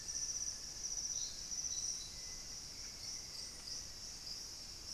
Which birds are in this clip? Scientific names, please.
Xiphorhynchus elegans, Campylorhynchus turdinus, Crypturellus soui, Formicarius analis